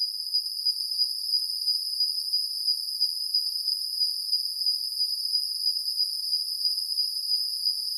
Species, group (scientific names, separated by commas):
Cyrtoxipha columbiana, Orthoptera